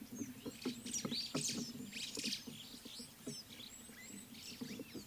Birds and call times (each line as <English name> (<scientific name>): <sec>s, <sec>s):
White-browed Sparrow-Weaver (Plocepasser mahali): 2.1s
Red-cheeked Cordonbleu (Uraeginthus bengalus): 3.9s